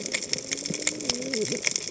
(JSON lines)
{"label": "biophony, cascading saw", "recorder": "HydroMoth"}